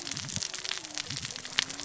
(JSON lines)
{"label": "biophony, cascading saw", "recorder": "SoundTrap 600 or HydroMoth"}